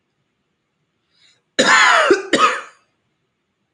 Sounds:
Cough